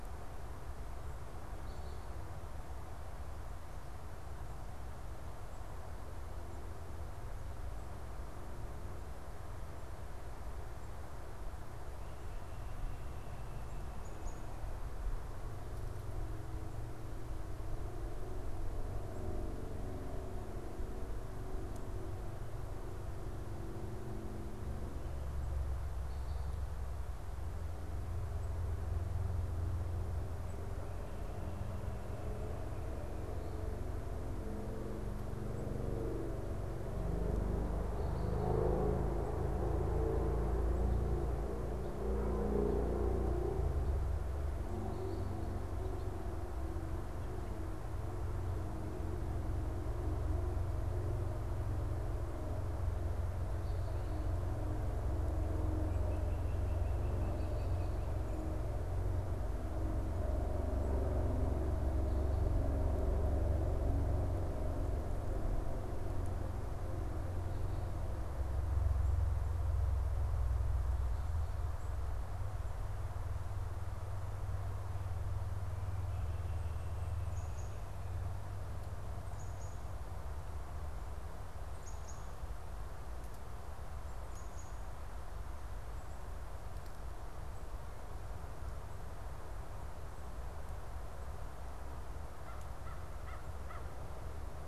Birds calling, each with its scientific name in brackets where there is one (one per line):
Black-capped Chickadee (Poecile atricapillus)
unidentified bird
American Crow (Corvus brachyrhynchos)